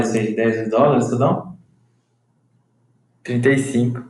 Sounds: Sigh